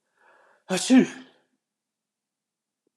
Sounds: Sneeze